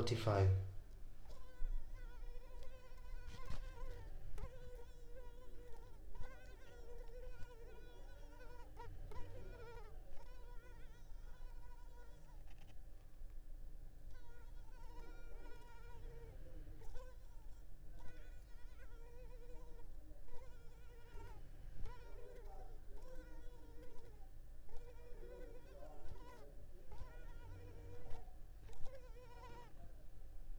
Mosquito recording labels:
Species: Culex pipiens complex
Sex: female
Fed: unfed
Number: one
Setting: cup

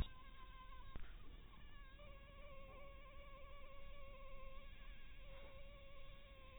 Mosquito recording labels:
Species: mosquito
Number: one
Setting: cup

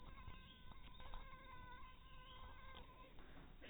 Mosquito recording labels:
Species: mosquito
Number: one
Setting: cup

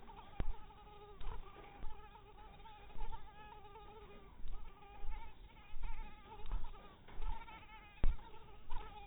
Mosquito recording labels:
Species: mosquito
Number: one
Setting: cup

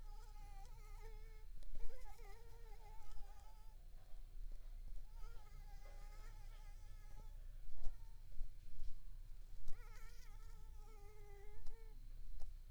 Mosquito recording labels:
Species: mosquito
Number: one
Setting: cup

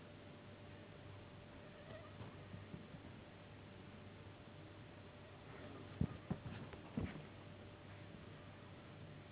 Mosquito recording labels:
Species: Anopheles gambiae s.s.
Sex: female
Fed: unfed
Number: one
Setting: insect culture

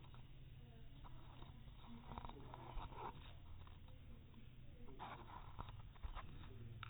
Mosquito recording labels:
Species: no mosquito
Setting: cup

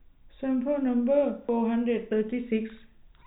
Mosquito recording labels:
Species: no mosquito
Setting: cup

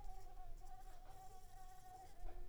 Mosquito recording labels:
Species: Mansonia uniformis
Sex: female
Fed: unfed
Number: one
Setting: cup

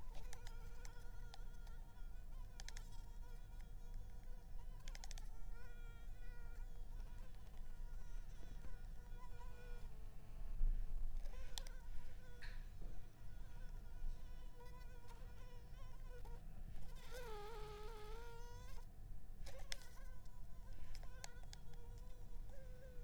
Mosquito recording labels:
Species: Anopheles arabiensis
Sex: female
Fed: unfed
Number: one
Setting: cup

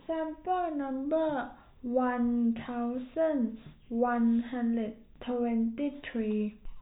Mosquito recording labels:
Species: no mosquito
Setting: cup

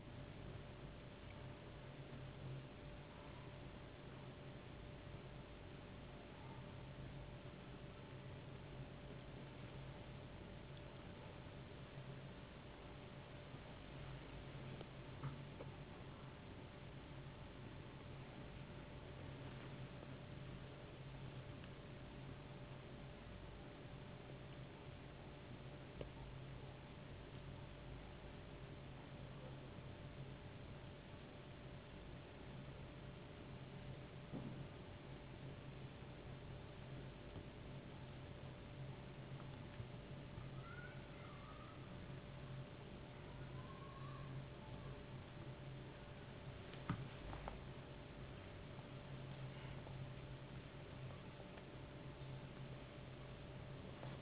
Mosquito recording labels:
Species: no mosquito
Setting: insect culture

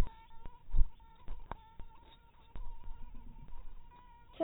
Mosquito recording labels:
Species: mosquito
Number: one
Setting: cup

